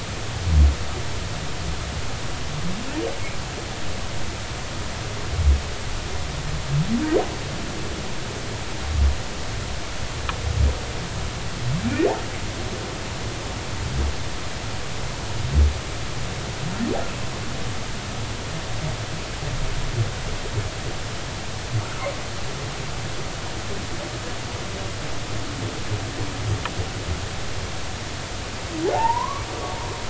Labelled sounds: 11.9	12.1	humpback whale, 2.3 to 2.5 kHz
21.8	22.0	humpback whale, 1.2 to 1.6 kHz
28.8	29.4	humpback whale, 0.80 to 1.2 kHz

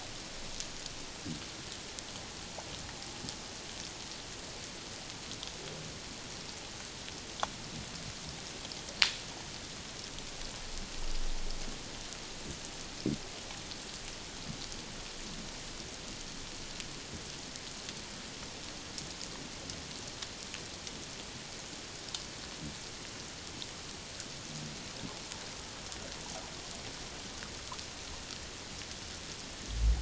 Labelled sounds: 26.2	26.5	water noise, 0.78 to 1.0 kHz

